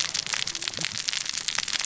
{"label": "biophony, cascading saw", "recorder": "SoundTrap 600 or HydroMoth"}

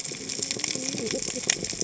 {"label": "biophony, cascading saw", "recorder": "HydroMoth"}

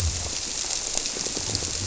{"label": "biophony", "recorder": "SoundTrap 300"}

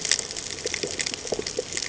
{"label": "ambient", "recorder": "HydroMoth"}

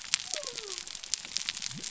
{"label": "biophony", "recorder": "SoundTrap 300"}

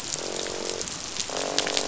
{"label": "biophony, croak", "recorder": "SoundTrap 500"}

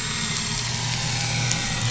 {"label": "anthrophony, boat engine", "recorder": "SoundTrap 500"}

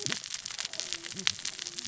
{"label": "biophony, cascading saw", "recorder": "SoundTrap 600 or HydroMoth"}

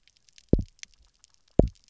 {"label": "biophony, grazing", "recorder": "SoundTrap 300"}
{"label": "biophony, double pulse", "recorder": "SoundTrap 300"}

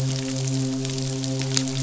{"label": "biophony, midshipman", "recorder": "SoundTrap 500"}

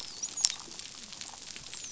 {"label": "biophony, dolphin", "recorder": "SoundTrap 500"}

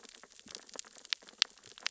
{"label": "biophony, sea urchins (Echinidae)", "recorder": "SoundTrap 600 or HydroMoth"}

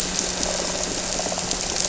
{"label": "anthrophony, boat engine", "recorder": "SoundTrap 300"}
{"label": "biophony", "recorder": "SoundTrap 300"}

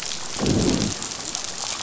{"label": "biophony, growl", "recorder": "SoundTrap 500"}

